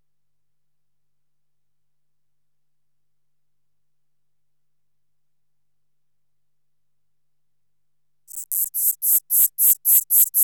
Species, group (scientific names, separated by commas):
Neocallicrania miegii, Orthoptera